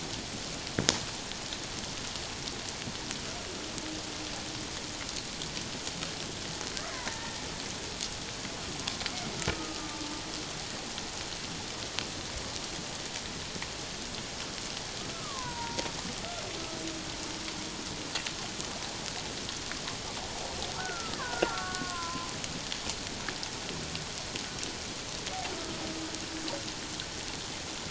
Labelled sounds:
6.9	7.4	killer whale, Bigg's (transient), 0.88 to 1.9 kHz
9.5	10.1	killer whale, Bigg's (transient), 1.2 to 1.3 kHz
15.1	15.9	killer whale, Bigg's (transient), 0.88 to 1.6 kHz
20.8	22.3	killer whale, Bigg's (transient), 0.91 to 1.8 kHz

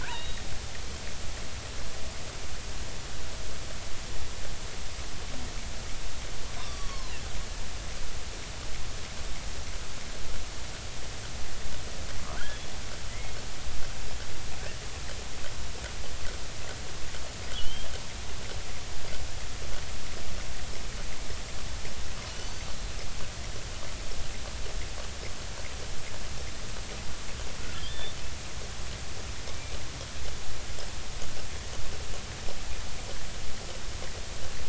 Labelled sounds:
0.0	0.4	killer whale, offshore, 1.4 to 4.0 kHz
6.6	7.2	killer whale, offshore, 0.96 to 4.7 kHz
12.4	13.3	killer whale, offshore, 1.3 to 2.2 kHz
17.5	17.9	killer whale, offshore, 2.8 to 3.4 kHz
22.3	22.7	killer whale, offshore, 4.4 to 6.1 kHz
27.7	28.1	killer whale, offshore, 2.8 to 3.7 kHz

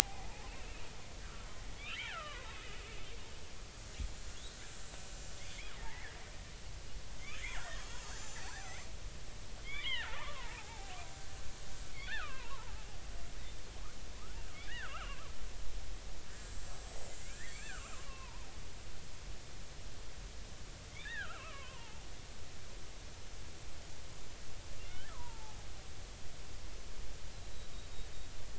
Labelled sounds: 0.5	0.8	killer whale, Bigg's (transient), 2.5 to 2.8 kHz
1.9	2.5	killer whale, Bigg's (transient), 0.83 to 3.4 kHz
4.5	5.3	killer whale, Bigg's (transient), 7.2 to 7.5 kHz
5.7	6.1	killer whale, Bigg's (transient), 0.80 to 2.3 kHz
7.3	8.9	killer whale, Bigg's (transient), 1.3 to 7.6 kHz
9.6	11.0	killer whale, Bigg's (transient), 0.80 to 2.4 kHz
11.9	12.8	killer whale, Bigg's (transient), 0.80 to 2.8 kHz
14.7	15.3	killer whale, Bigg's (transient), 0.93 to 2.0 kHz
17.1	18.5	killer whale, Bigg's (transient), 0.83 to 7.4 kHz
20.9	22.1	killer whale, Bigg's (transient), 0.80 to 3.8 kHz
24.9	25.6	killer whale, Bigg's (transient), 0.80 to 1.8 kHz

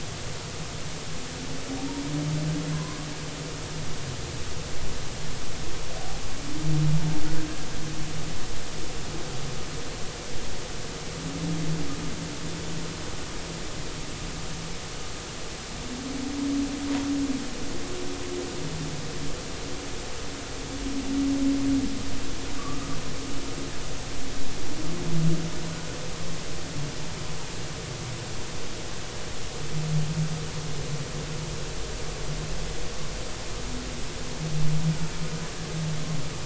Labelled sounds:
2.7	3.0	humpback whale, 0.96 to 1.1 kHz

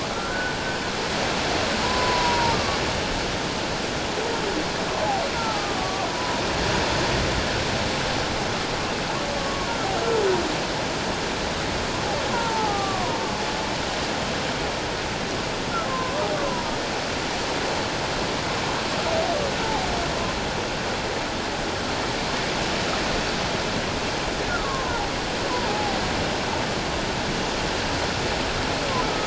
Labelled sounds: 0.3	0.6	humpback whale, 1.4 to 1.6 kHz
1.8	2.8	humpback whale, 0.84 to 1.2 kHz
5.3	6.4	humpback whale, 0.81 to 1.4 kHz
9.4	9.7	humpback whale, 1.0 to 1.2 kHz
12.3	13.2	humpback whale, 0.78 to 1.3 kHz
15.9	16.2	humpback whale, 0.97 to 1.1 kHz
24.6	26.0	humpback whale, 0.78 to 1.2 kHz

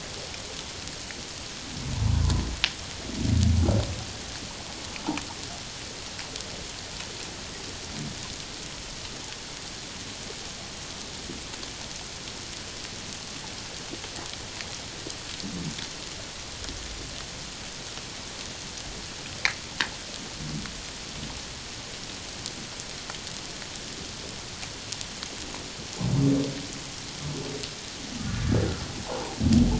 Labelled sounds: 1.9	2.2	humpback whale, 0.84 to 1.0 kHz
29.1	29.4	humpback whale, 0.78 to 1.1 kHz

